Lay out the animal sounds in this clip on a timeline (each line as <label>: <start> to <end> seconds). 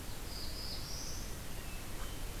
Black-throated Blue Warbler (Setophaga caerulescens): 0.0 to 1.3 seconds
Hermit Thrush (Catharus guttatus): 1.2 to 2.4 seconds